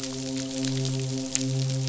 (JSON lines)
{"label": "biophony, midshipman", "recorder": "SoundTrap 500"}